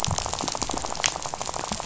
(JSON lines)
{"label": "biophony, rattle", "recorder": "SoundTrap 500"}